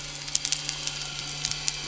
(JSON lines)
{"label": "anthrophony, boat engine", "recorder": "SoundTrap 300"}